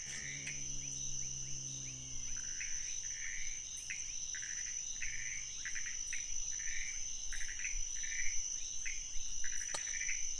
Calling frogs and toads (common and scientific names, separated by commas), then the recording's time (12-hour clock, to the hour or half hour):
Pithecopus azureus, rufous frog (Leptodactylus fuscus), menwig frog (Physalaemus albonotatus)
4am